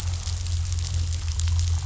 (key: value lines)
label: anthrophony, boat engine
recorder: SoundTrap 500